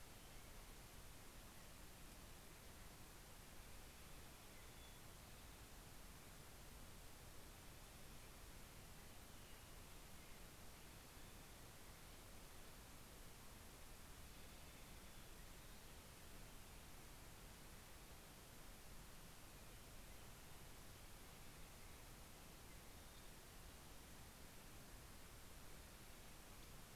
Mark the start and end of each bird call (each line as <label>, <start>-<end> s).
Hermit Thrush (Catharus guttatus), 4.0-5.5 s